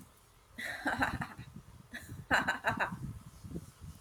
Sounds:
Laughter